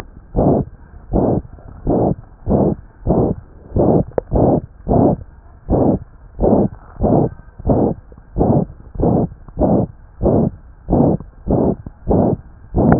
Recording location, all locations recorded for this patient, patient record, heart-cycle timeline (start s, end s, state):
tricuspid valve (TV)
aortic valve (AV)+pulmonary valve (PV)+tricuspid valve (TV)+mitral valve (MV)
#Age: Child
#Sex: Female
#Height: 117.0 cm
#Weight: 20.8 kg
#Pregnancy status: False
#Murmur: Present
#Murmur locations: aortic valve (AV)+mitral valve (MV)+pulmonary valve (PV)+tricuspid valve (TV)
#Most audible location: tricuspid valve (TV)
#Systolic murmur timing: Holosystolic
#Systolic murmur shape: Plateau
#Systolic murmur grading: III/VI or higher
#Systolic murmur pitch: High
#Systolic murmur quality: Harsh
#Diastolic murmur timing: nan
#Diastolic murmur shape: nan
#Diastolic murmur grading: nan
#Diastolic murmur pitch: nan
#Diastolic murmur quality: nan
#Outcome: Abnormal
#Campaign: 2015 screening campaign
0.00	0.32	unannotated
0.32	0.42	S1
0.42	0.56	systole
0.56	0.70	S2
0.70	1.08	diastole
1.08	1.24	S1
1.24	1.34	systole
1.34	1.48	S2
1.48	1.83	diastole
1.83	1.96	S1
1.96	2.09	systole
2.09	2.23	S2
2.23	2.44	diastole
2.44	2.58	S1
2.58	2.67	systole
2.67	2.83	S2
2.83	3.03	diastole
3.03	3.15	S1
3.15	3.28	systole
3.28	3.40	S2
3.40	3.72	diastole
3.72	3.86	S1
3.86	3.97	systole
3.97	4.13	S2
4.13	4.29	diastole
4.29	4.41	S1
4.41	4.53	systole
4.53	4.68	S2
4.68	4.85	diastole
4.85	4.98	S1
4.98	5.10	systole
5.10	5.25	S2
5.25	5.66	diastole
5.66	5.78	S1
5.78	5.92	systole
5.92	6.07	S2
6.07	6.36	diastole
6.36	6.49	S1
6.49	6.63	systole
6.63	6.78	S2
6.78	6.97	diastole
6.97	7.08	S1
7.08	7.22	systole
7.22	7.38	S2
7.38	7.63	diastole
7.63	7.73	S1
7.73	7.88	systole
7.88	8.03	S2
8.03	8.33	diastole
8.33	8.44	S1
8.44	8.57	systole
8.57	8.75	S2
8.75	8.93	diastole
8.93	9.07	S1
9.07	9.20	systole
9.20	9.37	S2
9.37	9.53	diastole
9.53	9.69	S1
9.69	9.78	systole
9.78	9.93	S2
9.93	10.18	diastole
10.18	10.31	S1
10.31	10.44	systole
10.44	10.58	S2
10.58	10.85	diastole
10.85	10.99	S1
10.99	11.10	systole
11.10	11.26	S2
11.26	11.44	diastole
11.44	11.60	S1
11.60	11.68	systole
11.68	11.84	S2
11.84	12.03	diastole
12.03	12.18	S1
12.18	12.30	systole
12.30	12.43	S2
12.43	12.71	diastole
12.71	12.83	S1
12.83	12.99	unannotated